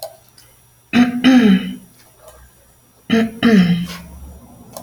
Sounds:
Throat clearing